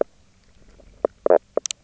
{"label": "biophony, knock croak", "recorder": "SoundTrap 300"}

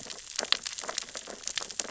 {"label": "biophony, sea urchins (Echinidae)", "recorder": "SoundTrap 600 or HydroMoth"}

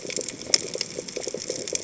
{"label": "biophony, chatter", "recorder": "HydroMoth"}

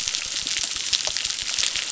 {"label": "biophony, crackle", "recorder": "SoundTrap 600"}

